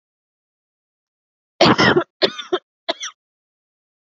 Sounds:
Cough